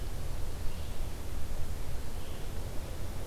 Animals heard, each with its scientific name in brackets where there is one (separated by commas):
Red-eyed Vireo (Vireo olivaceus)